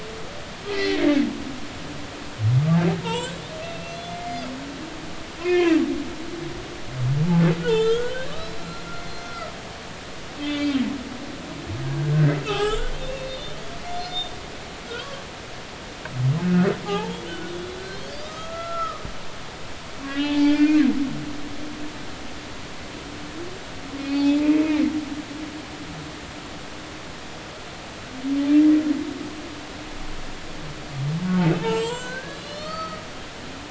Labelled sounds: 0.7	1.2	humpback whale, 1.6 to 2.3 kHz
3.0	3.3	humpback whale, 0.83 to 3.2 kHz
3.6	4.4	humpback whale, 2.0 to 2.8 kHz
5.4	5.8	humpback whale, 1.5 to 2.6 kHz
7.6	8.9	humpback whale, 1.3 to 4.2 kHz
9.2	9.5	humpback whale, 1.2 to 1.4 kHz
10.4	10.7	humpback whale, 2.0 to 4.8 kHz
12.4	13.6	humpback whale, 0.80 to 4.3 kHz
13.9	14.3	humpback whale, 4.0 to 5.2 kHz
16.4	17.5	humpback whale, 0.80 to 1.6 kHz
17.8	19.0	humpback whale, 1.1 to 6.6 kHz
20.0	20.9	humpback whale, 0.83 to 4.7 kHz
24.0	24.6	humpback whale, 0.80 to 4.6 kHz
31.6	33.0	humpback whale, 0.86 to 7.6 kHz

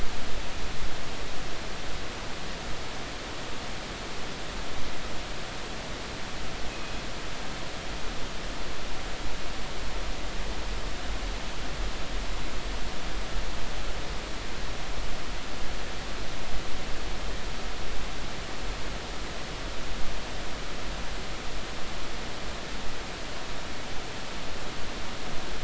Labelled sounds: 6.7	7.0	killer whale, northern resident, G clan, call N24ii, 2.5 to 2.6 kHz

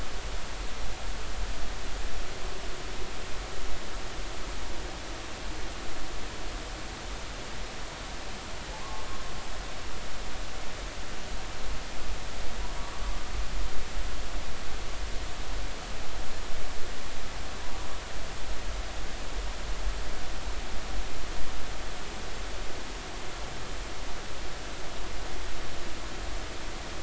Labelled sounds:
8.8	9.1	humpback whale, 0.96 to 1.2 kHz

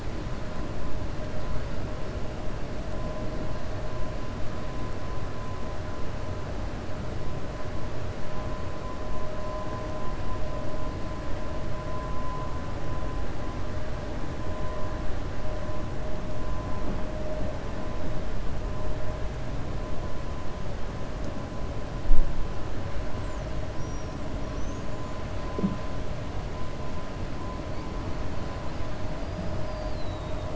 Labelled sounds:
23.7	24.9	killer whale, 5.1 to 6.8 kHz
29.5	30.5	killer whale, 3.7 to 5.1 kHz

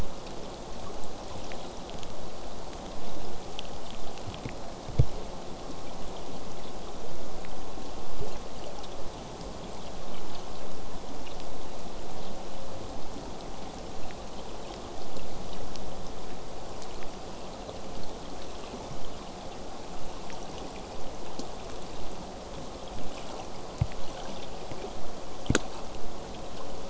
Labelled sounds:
16.9	22.0	vessel noise, 0 to 8.0 kHz

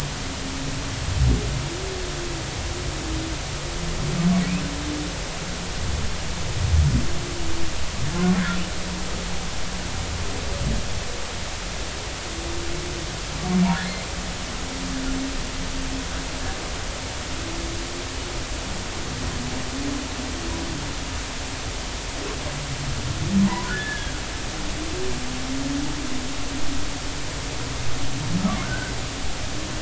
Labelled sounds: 23.4	24.2	humpback whale, 0.86 to 1.8 kHz
28.6	28.9	humpback whale, 1.3 to 1.6 kHz

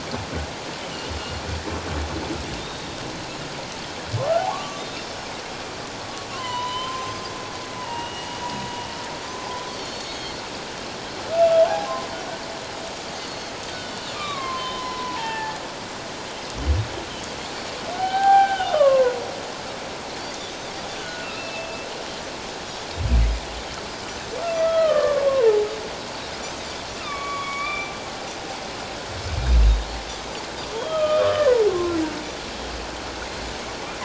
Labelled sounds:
2.6	3.0	Pacific white-sided dolphin, 3.5 to 3.8 kHz
4.4	4.8	humpback whale, 0.78 to 1.2 kHz
4.7	5.2	Pacific white-sided dolphin, 3.5 to 3.7 kHz
6.3	7.2	humpback whale, 0.91 to 3.2 kHz
6.5	6.8	Pacific white-sided dolphin, 3.7 to 3.9 kHz
7.8	8.5	humpback whale, 0.84 to 3.0 kHz
9.7	10.4	Pacific white-sided dolphin, 2.1 to 4.7 kHz
11.7	11.9	humpback whale, 0.78 to 0.91 kHz
13.2	13.5	Pacific white-sided dolphin, 4.2 to 4.5 kHz
14.1	15.6	humpback whale, 0.81 to 3.2 kHz
17.9	19.1	humpback whale, 0.78 to 3.2 kHz
21.0	21.9	humpback whale, 1.4 to 2.8 kHz
24.6	25.7	humpback whale, 0.81 to 2.0 kHz
27.0	27.9	humpback whale, 1.1 to 2.5 kHz
27.3	27.9	Pacific white-sided dolphin, 3.2 to 3.6 kHz
30.7	31.6	Pacific white-sided dolphin, 0.84 to 3.4 kHz
31.0	32.0	humpback whale, 1.0 to 2.6 kHz

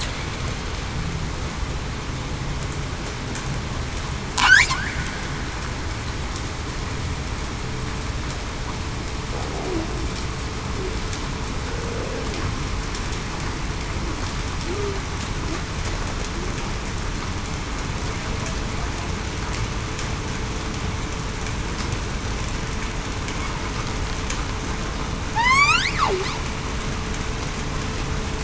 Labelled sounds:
14.6	15.0	killer whale, southern resident, 0.30 to 0.45 kHz
25.3	25.8	killer whale, southern resident, 0.80 to 4.5 kHz

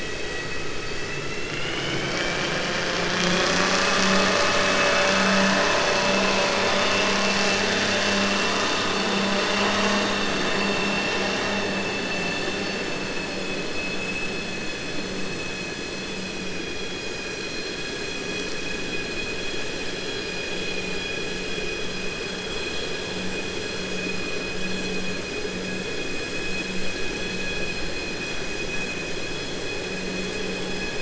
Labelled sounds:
11.8	12.5	vessel noise, 1.8 to 4.5 kHz
13.7	14.4	vessel noise, 2.5 to 3.5 kHz

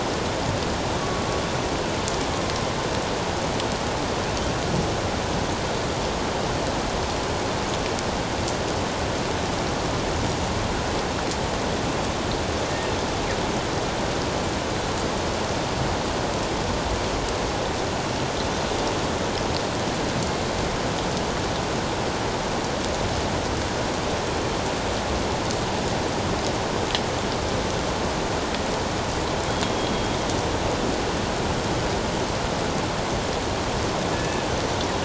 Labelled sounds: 29.7	30.1	killer whale, northern resident, A clan, 3.2 to 3.3 kHz
34.1	34.4	killer whale, northern resident, A clan, 1.7 to 2.7 kHz

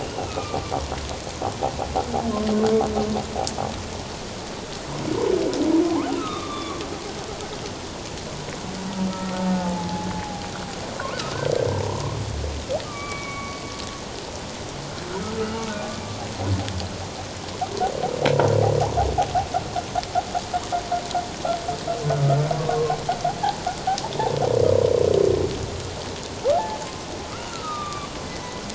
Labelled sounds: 0.0	0.6	humpback whale, 1.1 to 2.9 kHz
5.8	6.8	humpback whale, 0.78 to 3.8 kHz
9.1	10.4	humpback whale, 0.78 to 1.5 kHz
11.7	12.2	humpback whale, 0.88 to 1.1 kHz
12.8	13.6	humpback whale, 1.1 to 2.4 kHz
15.2	15.6	humpback whale, 1.2 to 1.4 kHz
22.1	23.0	humpback whale, 1.0 to 1.4 kHz
26.5	26.8	humpback whale, 0.78 to 0.94 kHz
27.5	28.6	humpback whale, 1.1 to 3.8 kHz

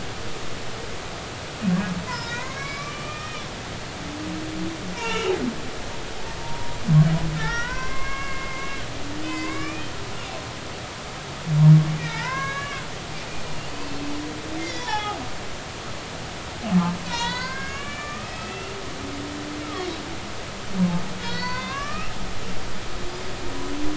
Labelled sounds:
2.1	3.5	humpback whale, 0.90 to 5.7 kHz
5.0	5.3	humpback whale, 0.86 to 2.9 kHz
6.4	10.4	humpback whale, 0.90 to 4.8 kHz
12.0	12.9	humpback whale, 0.83 to 6.2 kHz
13.7	15.2	humpback whale, 0.80 to 6.9 kHz
17.0	18.7	humpback whale, 0.90 to 6.8 kHz
19.6	19.9	humpback whale, 1.1 to 1.4 kHz
21.2	22.1	humpback whale, 0.93 to 5.5 kHz

